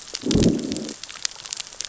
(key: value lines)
label: biophony, growl
recorder: SoundTrap 600 or HydroMoth